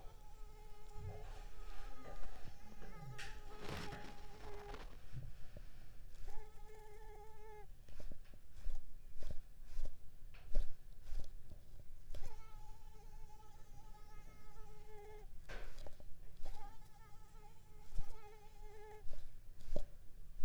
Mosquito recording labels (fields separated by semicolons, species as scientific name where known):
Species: Mansonia uniformis; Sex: female; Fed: unfed; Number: one; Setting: cup